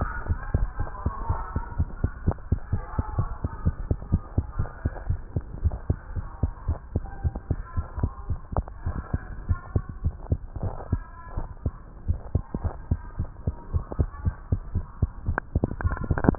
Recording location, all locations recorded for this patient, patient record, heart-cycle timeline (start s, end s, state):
tricuspid valve (TV)
aortic valve (AV)+pulmonary valve (PV)+tricuspid valve (TV)+mitral valve (MV)
#Age: Child
#Sex: Male
#Height: 113.0 cm
#Weight: 18.4 kg
#Pregnancy status: False
#Murmur: Absent
#Murmur locations: nan
#Most audible location: nan
#Systolic murmur timing: nan
#Systolic murmur shape: nan
#Systolic murmur grading: nan
#Systolic murmur pitch: nan
#Systolic murmur quality: nan
#Diastolic murmur timing: nan
#Diastolic murmur shape: nan
#Diastolic murmur grading: nan
#Diastolic murmur pitch: nan
#Diastolic murmur quality: nan
#Outcome: Normal
#Campaign: 2015 screening campaign
0.00	1.26	unannotated
1.26	1.39	S1
1.39	1.52	systole
1.52	1.64	S2
1.64	1.78	diastole
1.78	1.90	S1
1.90	2.00	systole
2.00	2.12	S2
2.12	2.26	diastole
2.26	2.36	S1
2.36	2.48	systole
2.48	2.60	S2
2.60	2.72	diastole
2.72	2.84	S1
2.84	2.94	systole
2.94	3.04	S2
3.04	3.16	diastole
3.16	3.30	S1
3.30	3.42	systole
3.42	3.52	S2
3.52	3.64	diastole
3.64	3.74	S1
3.74	3.84	systole
3.84	3.98	S2
3.98	4.10	diastole
4.10	4.22	S1
4.22	4.34	systole
4.34	4.46	S2
4.46	4.58	diastole
4.58	4.70	S1
4.70	4.84	systole
4.84	4.94	S2
4.94	5.08	diastole
5.08	5.20	S1
5.20	5.36	systole
5.36	5.46	S2
5.46	5.60	diastole
5.60	5.74	S1
5.74	5.88	systole
5.88	5.98	S2
5.98	6.14	diastole
6.14	6.26	S1
6.26	6.42	systole
6.42	6.52	S2
6.52	6.66	diastole
6.66	6.78	S1
6.78	6.94	systole
6.94	7.04	S2
7.04	7.20	diastole
7.20	7.34	S1
7.34	7.50	systole
7.50	7.64	S2
7.64	7.76	diastole
7.76	7.86	S1
7.86	7.98	systole
7.98	8.12	S2
8.12	8.28	diastole
8.28	8.40	S1
8.40	8.52	systole
8.52	8.66	S2
8.66	8.84	diastole
8.84	8.98	S1
8.98	9.14	systole
9.14	9.24	S2
9.24	9.44	diastole
9.44	9.60	S1
9.60	9.74	systole
9.74	9.88	S2
9.88	10.02	diastole
10.02	10.16	S1
10.16	10.30	systole
10.30	10.40	S2
10.40	10.60	diastole
10.60	10.76	S1
10.76	10.88	systole
10.88	11.02	S2
11.02	11.35	diastole
11.35	11.46	S1
11.46	11.62	systole
11.62	11.76	S2
11.76	12.08	diastole
12.08	12.22	S1
12.22	12.34	systole
12.34	12.46	S2
12.46	12.64	diastole
12.64	12.76	S1
12.76	12.89	systole
12.89	13.02	S2
13.02	13.18	diastole
13.18	13.30	S1
13.30	13.46	systole
13.46	13.58	S2
13.58	13.72	diastole
13.72	13.84	S1
13.84	13.96	systole
13.96	14.08	S2
14.08	14.24	diastole
14.24	14.36	S1
14.36	14.48	systole
14.48	14.60	S2
14.60	14.74	diastole
14.74	14.86	S1
14.86	14.98	systole
14.98	15.12	S2
15.12	15.26	diastole
15.26	15.38	S1
15.38	15.52	systole
15.52	15.68	S2
15.68	15.82	diastole
15.82	15.95	S1
15.95	16.38	unannotated